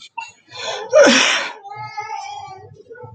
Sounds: Cough